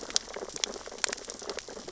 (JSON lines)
{"label": "biophony, sea urchins (Echinidae)", "recorder": "SoundTrap 600 or HydroMoth"}